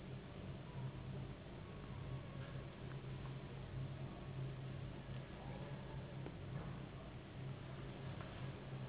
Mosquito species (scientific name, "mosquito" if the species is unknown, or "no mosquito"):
Anopheles gambiae s.s.